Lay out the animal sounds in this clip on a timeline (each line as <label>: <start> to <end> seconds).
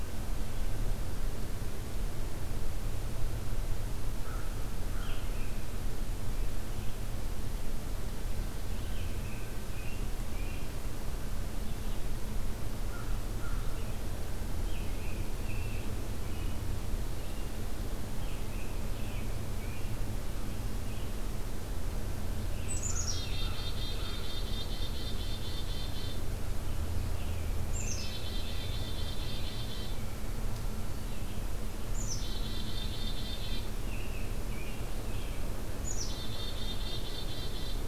American Crow (Corvus brachyrhynchos): 4.2 to 5.2 seconds
American Robin (Turdus migratorius): 5.0 to 5.7 seconds
Red-eyed Vireo (Vireo olivaceus): 6.5 to 9.1 seconds
American Robin (Turdus migratorius): 8.8 to 10.7 seconds
Red-eyed Vireo (Vireo olivaceus): 11.5 to 22.9 seconds
American Crow (Corvus brachyrhynchos): 12.8 to 13.7 seconds
American Robin (Turdus migratorius): 14.6 to 16.6 seconds
American Robin (Turdus migratorius): 18.1 to 20.0 seconds
Black-capped Chickadee (Poecile atricapillus): 22.6 to 26.3 seconds
American Crow (Corvus brachyrhynchos): 22.8 to 24.3 seconds
American Robin (Turdus migratorius): 26.5 to 28.8 seconds
Black-capped Chickadee (Poecile atricapillus): 27.6 to 30.0 seconds
Red-eyed Vireo (Vireo olivaceus): 30.9 to 31.6 seconds
Black-capped Chickadee (Poecile atricapillus): 31.8 to 33.8 seconds
American Robin (Turdus migratorius): 33.3 to 35.5 seconds
Black-capped Chickadee (Poecile atricapillus): 35.8 to 37.8 seconds